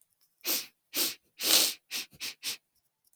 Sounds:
Sniff